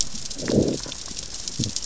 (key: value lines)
label: biophony, growl
recorder: SoundTrap 600 or HydroMoth